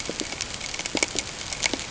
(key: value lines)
label: ambient
recorder: HydroMoth